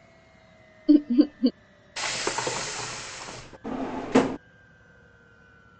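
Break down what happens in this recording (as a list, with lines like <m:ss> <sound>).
0:01 laughter is heard
0:02 you can hear furniture moving
0:04 a drawer opens or closes
a faint, even noise lies about 30 dB below the sounds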